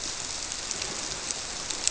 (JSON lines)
{"label": "biophony", "recorder": "SoundTrap 300"}